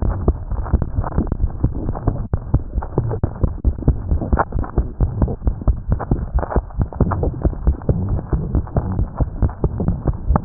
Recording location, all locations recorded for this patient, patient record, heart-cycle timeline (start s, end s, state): tricuspid valve (TV)
aortic valve (AV)+pulmonary valve (PV)+tricuspid valve (TV)+mitral valve (MV)
#Age: Child
#Sex: Female
#Height: 118.0 cm
#Weight: 17.0 kg
#Pregnancy status: False
#Murmur: Present
#Murmur locations: mitral valve (MV)
#Most audible location: mitral valve (MV)
#Systolic murmur timing: Holosystolic
#Systolic murmur shape: Plateau
#Systolic murmur grading: I/VI
#Systolic murmur pitch: Medium
#Systolic murmur quality: Blowing
#Diastolic murmur timing: nan
#Diastolic murmur shape: nan
#Diastolic murmur grading: nan
#Diastolic murmur pitch: nan
#Diastolic murmur quality: nan
#Outcome: Abnormal
#Campaign: 2015 screening campaign
0.00	0.13	S1
0.13	0.25	systole
0.25	0.34	S2
0.34	0.50	diastole
0.50	0.63	S1
0.63	0.70	systole
0.70	0.79	S2
0.79	0.95	diastole
0.95	1.05	S1
1.05	1.15	systole
1.15	1.24	S2
1.24	1.40	diastole
1.40	1.49	S1
1.49	1.62	systole
1.62	1.69	S2
1.69	1.85	diastole
1.85	1.95	S1
1.95	2.04	systole
2.04	2.15	S2
2.15	2.31	diastole
2.31	2.40	S1
2.40	2.50	systole
2.50	2.60	S2
2.60	2.73	diastole
2.73	2.83	S1